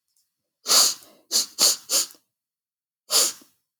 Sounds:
Sniff